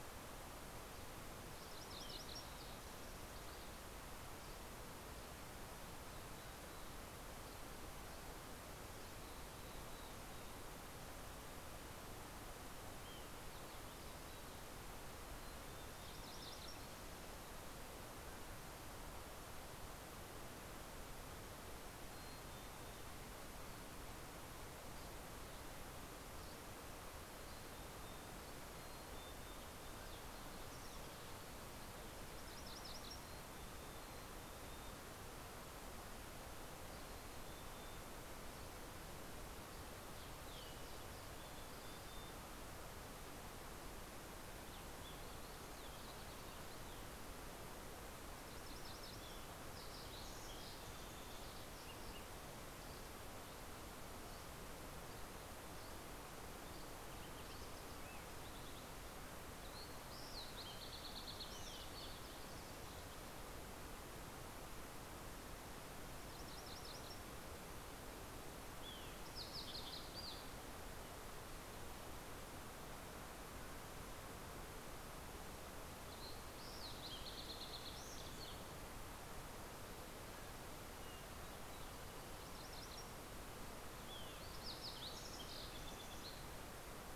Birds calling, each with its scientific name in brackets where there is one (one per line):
Fox Sparrow (Passerella iliaca)
MacGillivray's Warbler (Geothlypis tolmiei)
Dusky Flycatcher (Empidonax oberholseri)
Mountain Quail (Oreortyx pictus)
Mountain Chickadee (Poecile gambeli)